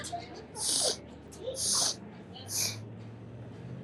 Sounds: Sniff